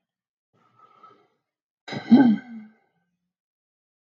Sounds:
Sigh